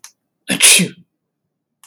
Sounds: Sneeze